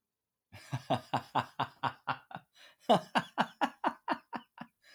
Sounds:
Laughter